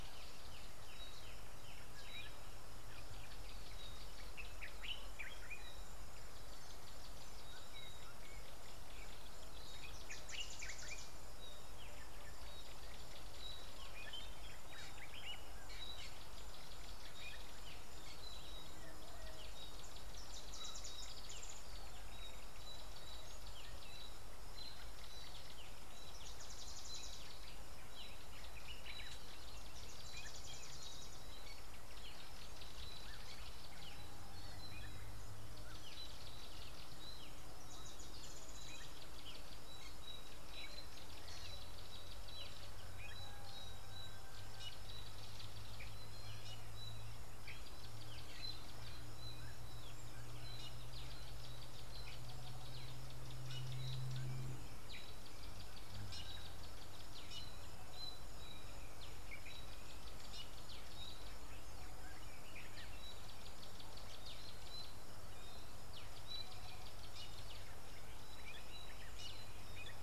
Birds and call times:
Common Bulbul (Pycnonotus barbatus): 4.9s

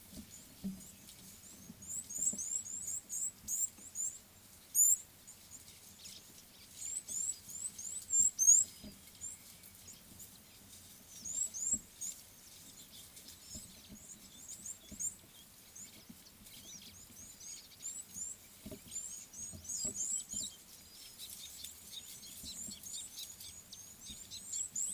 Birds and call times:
Red-cheeked Cordonbleu (Uraeginthus bengalus): 2.4s, 8.2s, 19.9s
Scarlet-chested Sunbird (Chalcomitra senegalensis): 23.0s

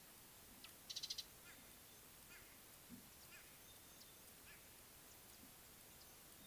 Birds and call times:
Beautiful Sunbird (Cinnyris pulchellus): 1.1s

